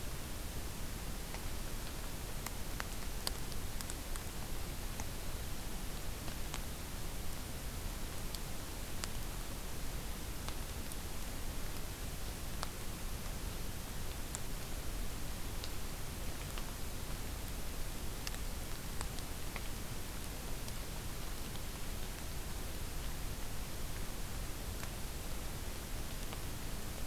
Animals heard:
forest ambience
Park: Acadia National Park